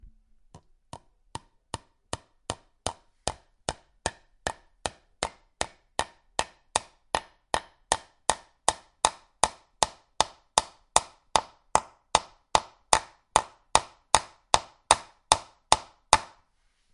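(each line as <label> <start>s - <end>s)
A hammer hits a nail repetitively and rhythmically with increasing volume. 0.5s - 16.3s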